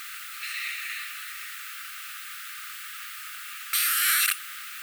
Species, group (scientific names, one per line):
Poecilimon sanctipauli
Orthoptera